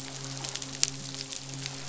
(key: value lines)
label: biophony, midshipman
recorder: SoundTrap 500